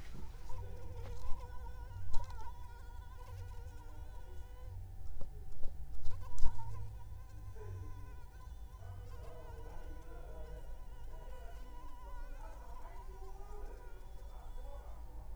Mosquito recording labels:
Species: Anopheles arabiensis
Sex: female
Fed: unfed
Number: one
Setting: cup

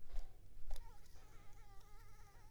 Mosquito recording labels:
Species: Anopheles arabiensis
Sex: female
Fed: unfed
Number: one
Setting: cup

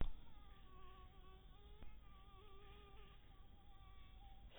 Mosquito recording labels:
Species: mosquito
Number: one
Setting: cup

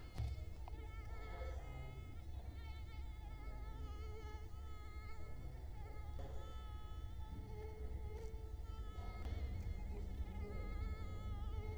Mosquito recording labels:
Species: Culex quinquefasciatus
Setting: cup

